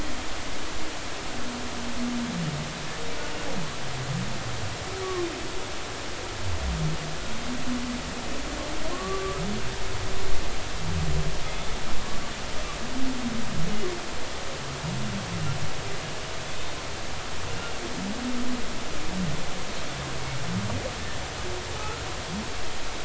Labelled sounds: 9.9	10.4	humpback whale, 1.0 to 1.2 kHz
11.4	11.7	humpback whale, 3.3 to 3.6 kHz
21.8	22.0	humpback whale, 1.2 to 1.4 kHz

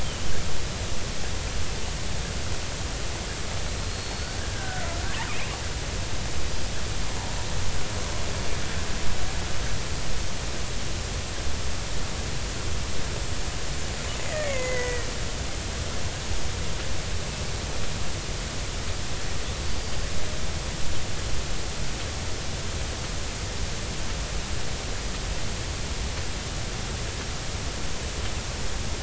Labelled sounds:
3.7	4.8	killer whale, Bigg's (transient), 1.4 to 4.6 kHz
13.9	15.1	killer whale, Bigg's (transient), 1.9 to 7.1 kHz
19.6	20.0	killer whale, Bigg's (transient), 4.4 to 4.8 kHz

